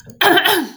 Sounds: Throat clearing